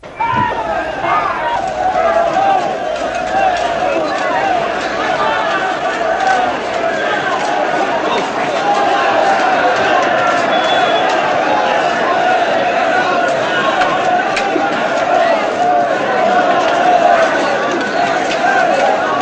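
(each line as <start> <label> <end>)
0.0 A crowd is marching while yelling and shouting. 19.2
10.4 A harsh whistle is heard. 10.9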